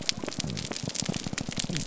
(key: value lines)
label: biophony
recorder: SoundTrap 300